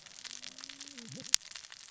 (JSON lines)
{"label": "biophony, cascading saw", "recorder": "SoundTrap 600 or HydroMoth"}